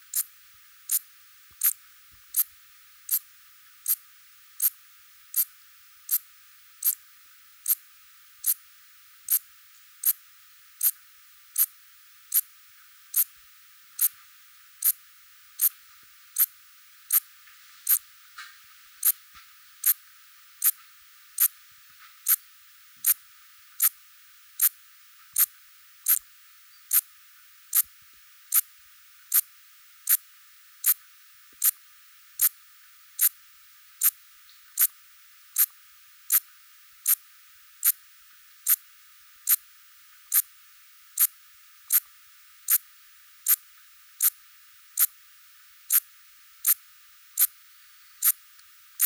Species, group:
Eupholidoptera uvarovi
Orthoptera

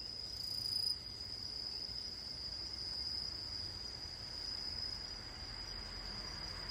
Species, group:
Truljalia hibinonis
Orthoptera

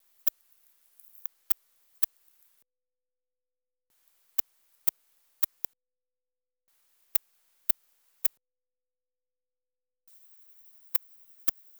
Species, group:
Tylopsis lilifolia
Orthoptera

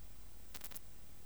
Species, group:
Poecilimon chopardi
Orthoptera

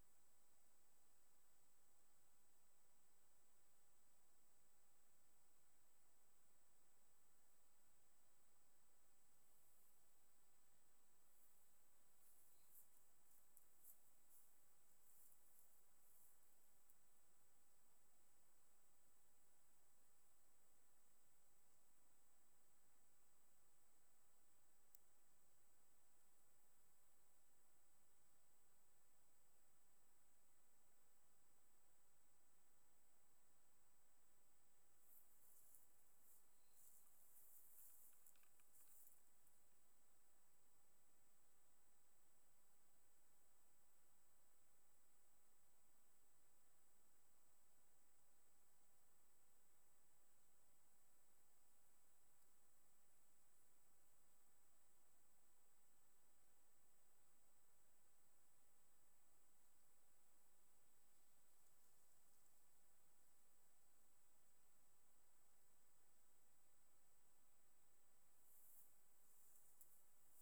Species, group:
Leptophyes punctatissima
Orthoptera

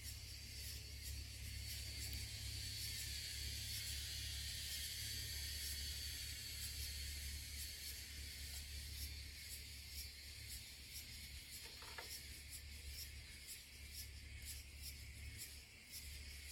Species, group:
Acanthoventris drewseni
Cicadidae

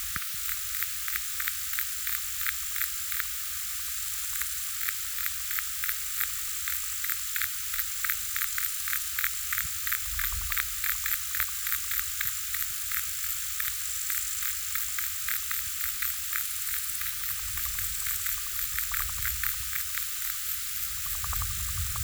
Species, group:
Metrioptera brachyptera
Orthoptera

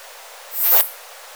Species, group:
Poecilimon hoelzeli
Orthoptera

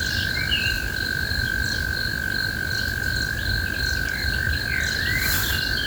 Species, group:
Gryllotalpa gryllotalpa
Orthoptera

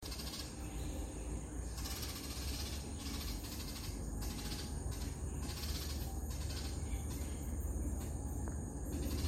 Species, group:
Gymnotympana varicolor
Cicadidae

